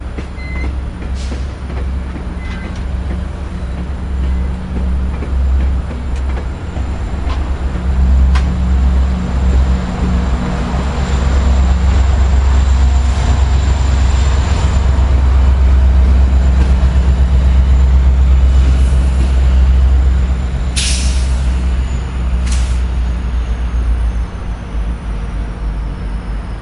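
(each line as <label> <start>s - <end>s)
Noises at a train station. 0.2s - 26.6s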